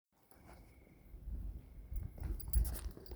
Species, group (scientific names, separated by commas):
Oecanthus pellucens, Orthoptera